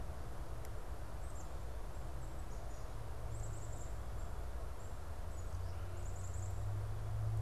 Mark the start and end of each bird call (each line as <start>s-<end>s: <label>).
0.0s-7.4s: Black-capped Chickadee (Poecile atricapillus)